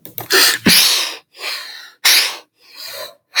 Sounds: Sneeze